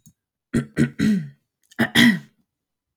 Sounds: Throat clearing